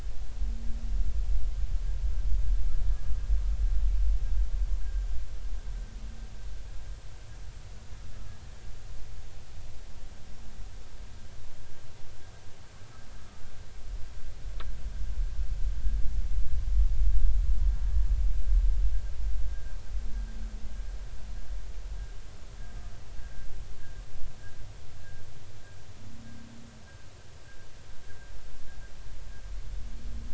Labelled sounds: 4.8	5.1	humpback whale, 1.5 to 1.7 kHz
19.5	19.7	humpback whale, 1.5 to 1.7 kHz

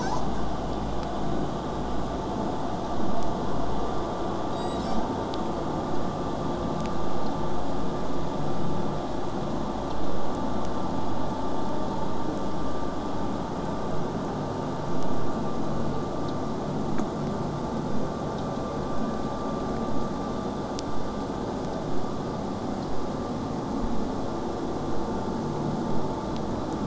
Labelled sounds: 16.9	21.9	vessel noise, 0 to 8.0 kHz

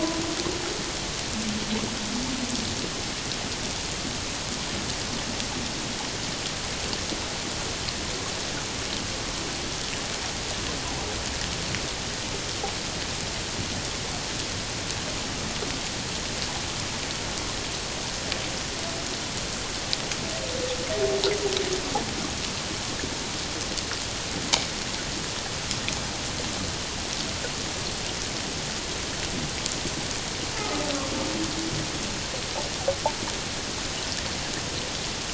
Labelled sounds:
30.6	30.8	humpback whale, 1.2 to 1.3 kHz

